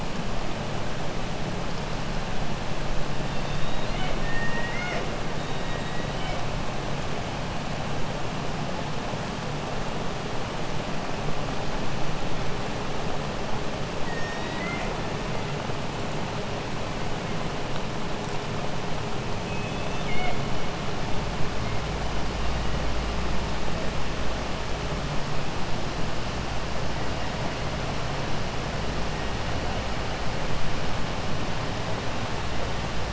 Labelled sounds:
3.2	5.1	killer whale, 0.54 to 6.4 kHz
5.4	6.4	killer whale, 1.5 to 4.7 kHz
14.0	14.9	killer whale, 1.4 to 7.4 kHz
19.4	20.4	killer whale, 0.57 to 4.4 kHz

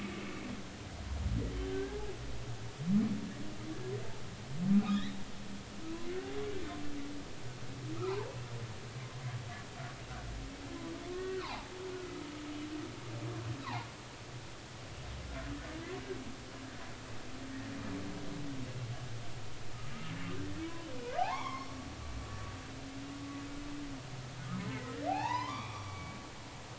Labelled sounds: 1.7	2.0	humpback whale, 1.5 to 1.7 kHz
4.8	5.2	humpback whale, 2.2 to 4.1 kHz
6.5	6.7	humpback whale, 2.2 to 2.4 kHz
8.1	8.4	humpback whale, 0.80 to 1.1 kHz
11.1	11.7	humpback whale, 0.80 to 2.0 kHz
12.0	12.3	humpback whale, 1.2 to 1.4 kHz
13.6	13.9	humpback whale, 0.80 to 1.4 kHz
21.2	21.7	humpback whale, 0.80 to 3.5 kHz
24.7	26.1	humpback whale, 0.80 to 5.2 kHz

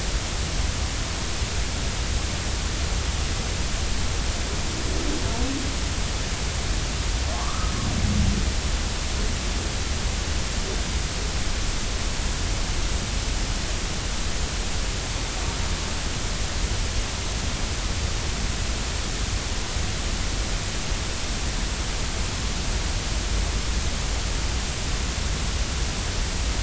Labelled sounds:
7.3	7.7	humpback whale, 0.96 to 1.3 kHz

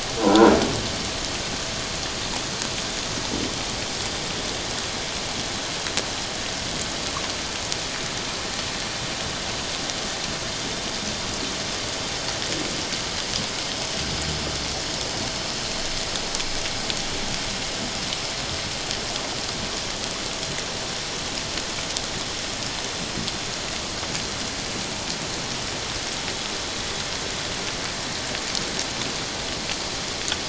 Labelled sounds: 0.2	0.5	croaking sound likely from a nearby submerged object, 0.88 to 1.5 kHz

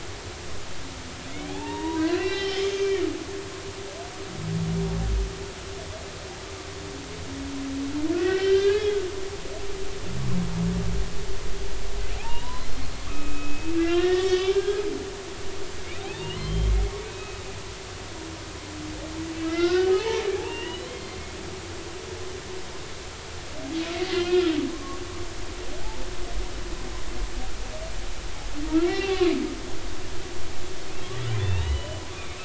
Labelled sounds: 1.3	3.0	humpback whale, 0.80 to 5.3 kHz
8.1	9.0	humpback whale, 1.4 to 3.2 kHz
9.6	9.9	humpback whale, 2.4 to 2.6 kHz
12.2	14.8	humpback whale, 0.80 to 4.3 kHz
16.0	16.7	humpback whale, 0.80 to 3.2 kHz
17.1	17.4	humpback whale, 2.5 to 2.6 kHz
19.4	21.2	humpback whale, 0.80 to 3.3 kHz
24.1	24.5	humpback whale, 1.2 to 3.3 kHz
28.7	29.3	humpback whale, 2.2 to 3.6 kHz
31.4	32.4	humpback whale, 1.8 to 4.0 kHz

